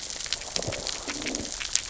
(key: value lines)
label: biophony, growl
recorder: SoundTrap 600 or HydroMoth